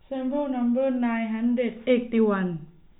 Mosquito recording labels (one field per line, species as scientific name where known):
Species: no mosquito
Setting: cup